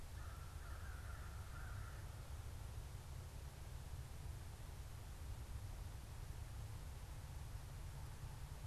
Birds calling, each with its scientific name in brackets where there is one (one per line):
American Crow (Corvus brachyrhynchos)